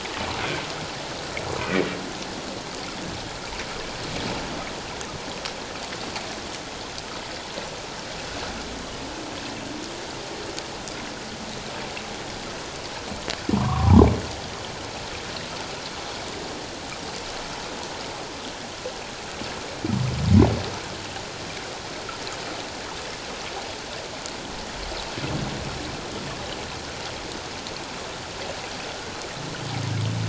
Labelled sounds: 1.6	1.8	humpback whale, 2.2 to 2.6 kHz
13.5	14.1	humpback whale, 0.78 to 1.3 kHz

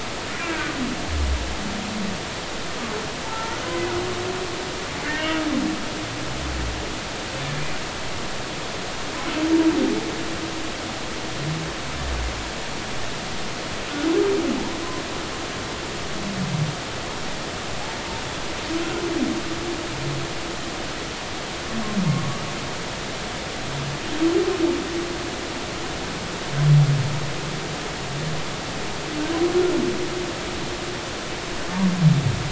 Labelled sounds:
0.4	0.7	humpback whale, 1.4 to 2.8 kHz
3.2	3.6	humpback whale, 0.83 to 1.5 kHz
5.0	5.3	humpback whale, 1.4 to 1.6 kHz

